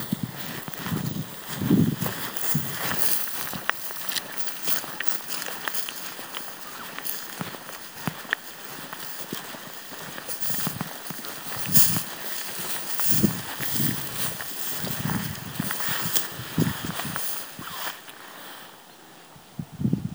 Are they playing football?
no